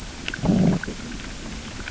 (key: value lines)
label: biophony, growl
recorder: SoundTrap 600 or HydroMoth